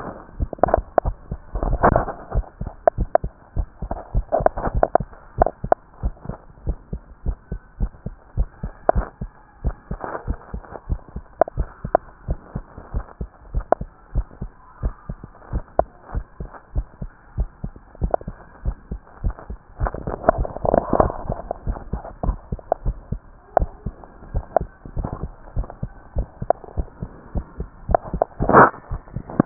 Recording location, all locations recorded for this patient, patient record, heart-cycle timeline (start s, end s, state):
tricuspid valve (TV)
aortic valve (AV)+pulmonary valve (PV)+tricuspid valve (TV)+mitral valve (MV)
#Age: Child
#Sex: Male
#Height: 127.0 cm
#Weight: 26.1 kg
#Pregnancy status: False
#Murmur: Absent
#Murmur locations: nan
#Most audible location: nan
#Systolic murmur timing: nan
#Systolic murmur shape: nan
#Systolic murmur grading: nan
#Systolic murmur pitch: nan
#Systolic murmur quality: nan
#Diastolic murmur timing: nan
#Diastolic murmur shape: nan
#Diastolic murmur grading: nan
#Diastolic murmur pitch: nan
#Diastolic murmur quality: nan
#Outcome: Normal
#Campaign: 2015 screening campaign
0.00	6.00	unannotated
6.00	6.14	S1
6.14	6.27	systole
6.27	6.38	S2
6.38	6.64	diastole
6.64	6.78	S1
6.78	6.92	systole
6.92	7.02	S2
7.02	7.24	diastole
7.24	7.36	S1
7.36	7.50	systole
7.50	7.60	S2
7.60	7.80	diastole
7.80	7.92	S1
7.92	8.04	systole
8.04	8.16	S2
8.16	8.38	diastole
8.38	8.48	S1
8.48	8.62	systole
8.62	8.72	S2
8.72	8.94	diastole
8.94	9.08	S1
9.08	9.22	systole
9.22	9.32	S2
9.32	9.62	diastole
9.62	9.76	S1
9.76	9.90	systole
9.90	10.00	S2
10.00	10.26	diastole
10.26	10.38	S1
10.38	10.52	systole
10.52	10.64	S2
10.64	10.88	diastole
10.88	11.00	S1
11.00	11.14	systole
11.14	11.24	S2
11.24	11.54	diastole
11.54	11.68	S1
11.68	11.82	systole
11.82	11.92	S2
11.92	12.24	diastole
12.24	12.38	S1
12.38	12.54	systole
12.54	12.64	S2
12.64	12.92	diastole
12.92	13.06	S1
13.06	13.20	systole
13.20	13.28	S2
13.28	13.52	diastole
13.52	13.66	S1
13.66	13.80	systole
13.80	13.90	S2
13.90	14.14	diastole
14.14	14.26	S1
14.26	14.40	systole
14.40	14.52	S2
14.52	14.82	diastole
14.82	14.94	S1
14.94	15.10	systole
15.10	15.22	S2
15.22	15.50	diastole
15.50	15.64	S1
15.64	15.78	systole
15.78	15.88	S2
15.88	16.14	diastole
16.14	16.26	S1
16.26	16.40	systole
16.40	16.50	S2
16.50	16.74	diastole
16.74	16.88	S1
16.88	17.02	systole
17.02	17.10	S2
17.10	17.36	diastole
17.36	17.50	S1
17.50	17.62	systole
17.62	17.72	S2
17.72	18.00	diastole
18.00	18.14	S1
18.14	18.26	systole
18.26	18.36	S2
18.36	18.64	diastole
18.64	18.76	S1
18.76	18.90	systole
18.90	19.00	S2
19.00	19.22	diastole
19.22	19.36	S1
19.36	19.48	systole
19.48	19.57	S2
19.57	29.46	unannotated